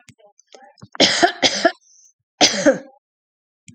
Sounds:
Laughter